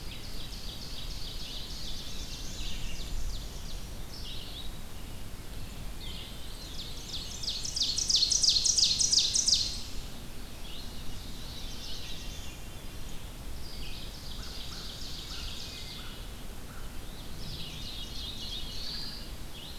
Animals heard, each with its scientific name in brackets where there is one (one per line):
Veery (Catharus fuscescens)
Wood Thrush (Hylocichla mustelina)
Ovenbird (Seiurus aurocapilla)
Red-eyed Vireo (Vireo olivaceus)
Black-and-white Warbler (Mniotilta varia)
American Crow (Corvus brachyrhynchos)
Black-throated Blue Warbler (Setophaga caerulescens)